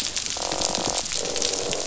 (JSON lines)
{"label": "biophony", "recorder": "SoundTrap 500"}
{"label": "biophony, croak", "recorder": "SoundTrap 500"}